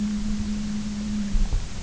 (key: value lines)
label: anthrophony, boat engine
recorder: SoundTrap 300